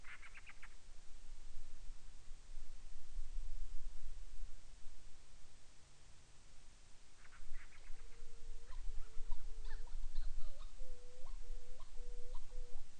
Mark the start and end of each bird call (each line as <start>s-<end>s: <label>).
0.0s-0.8s: Band-rumped Storm-Petrel (Hydrobates castro)
7.0s-8.3s: Band-rumped Storm-Petrel (Hydrobates castro)
7.8s-12.9s: Hawaiian Petrel (Pterodroma sandwichensis)